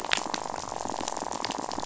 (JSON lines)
{"label": "biophony, rattle", "recorder": "SoundTrap 500"}
{"label": "biophony", "recorder": "SoundTrap 500"}